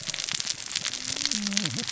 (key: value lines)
label: biophony, cascading saw
recorder: SoundTrap 600 or HydroMoth